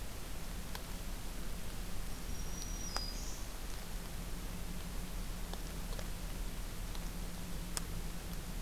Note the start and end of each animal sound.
[2.11, 3.45] Black-throated Green Warbler (Setophaga virens)

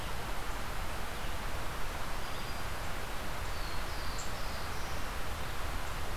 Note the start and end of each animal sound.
[3.45, 5.17] Black-throated Blue Warbler (Setophaga caerulescens)

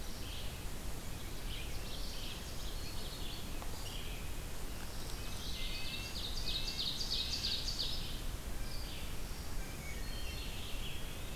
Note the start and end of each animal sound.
[0.00, 4.15] Red-eyed Vireo (Vireo olivaceus)
[1.51, 3.32] Ovenbird (Seiurus aurocapilla)
[4.95, 7.53] Red-breasted Nuthatch (Sitta canadensis)
[5.95, 8.37] Ovenbird (Seiurus aurocapilla)
[9.15, 10.81] Black-throated Green Warbler (Setophaga virens)
[9.56, 10.76] Wood Thrush (Hylocichla mustelina)

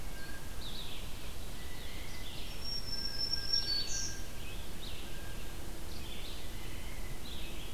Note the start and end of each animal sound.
[0.00, 5.46] Blue Jay (Cyanocitta cristata)
[0.00, 7.73] Red-eyed Vireo (Vireo olivaceus)
[2.29, 4.63] Black-throated Green Warbler (Setophaga virens)

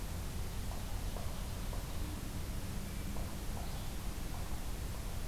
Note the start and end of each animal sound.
[0.38, 2.17] Ovenbird (Seiurus aurocapilla)

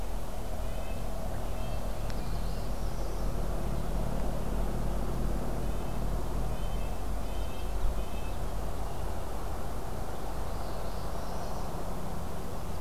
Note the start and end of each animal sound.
[0.60, 1.99] Red-breasted Nuthatch (Sitta canadensis)
[2.10, 3.39] Northern Parula (Setophaga americana)
[5.51, 8.49] Red-breasted Nuthatch (Sitta canadensis)
[7.25, 8.65] American Goldfinch (Spinus tristis)
[10.44, 11.66] Northern Parula (Setophaga americana)

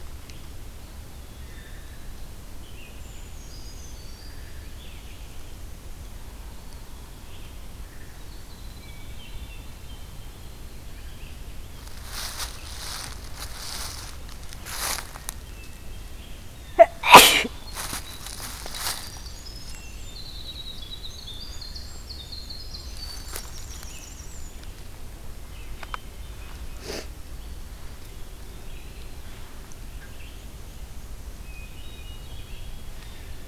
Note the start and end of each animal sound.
[1.04, 2.12] Eastern Wood-Pewee (Contopus virens)
[2.38, 11.98] Red-eyed Vireo (Vireo olivaceus)
[2.94, 4.68] Brown Creeper (Certhia americana)
[6.47, 7.44] Eastern Wood-Pewee (Contopus virens)
[8.77, 10.47] Hermit Thrush (Catharus guttatus)
[15.38, 16.43] Hermit Thrush (Catharus guttatus)
[17.47, 24.73] Winter Wren (Troglodytes hiemalis)
[19.66, 20.71] Hermit Thrush (Catharus guttatus)
[25.56, 26.89] Hermit Thrush (Catharus guttatus)
[28.22, 29.34] Eastern Wood-Pewee (Contopus virens)
[29.84, 31.48] Black-and-white Warbler (Mniotilta varia)
[31.36, 32.75] Hermit Thrush (Catharus guttatus)

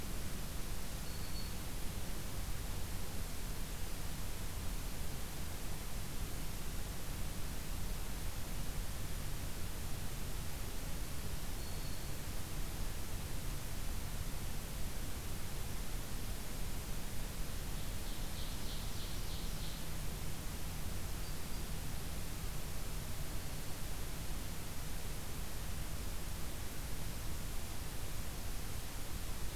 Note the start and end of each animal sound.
[0.88, 1.64] Black-throated Green Warbler (Setophaga virens)
[11.12, 12.27] Black-throated Green Warbler (Setophaga virens)
[17.71, 19.89] Ovenbird (Seiurus aurocapilla)
[21.14, 21.80] Black-throated Green Warbler (Setophaga virens)

